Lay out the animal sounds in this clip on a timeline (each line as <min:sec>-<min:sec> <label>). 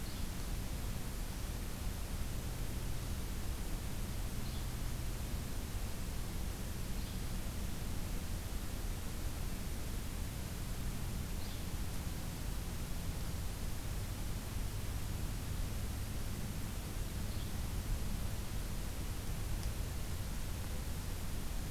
0:00.0-0:00.3 Yellow-bellied Flycatcher (Empidonax flaviventris)
0:04.3-0:04.7 Yellow-bellied Flycatcher (Empidonax flaviventris)
0:06.9-0:07.2 Yellow-bellied Flycatcher (Empidonax flaviventris)
0:11.3-0:11.6 Yellow-bellied Flycatcher (Empidonax flaviventris)
0:17.2-0:17.6 Yellow-bellied Flycatcher (Empidonax flaviventris)